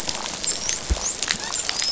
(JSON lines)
{"label": "biophony, dolphin", "recorder": "SoundTrap 500"}